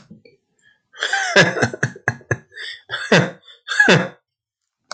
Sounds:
Laughter